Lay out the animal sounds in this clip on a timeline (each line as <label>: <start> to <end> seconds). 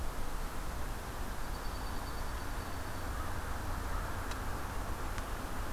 Dark-eyed Junco (Junco hyemalis): 1.1 to 3.0 seconds